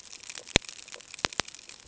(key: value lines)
label: ambient
recorder: HydroMoth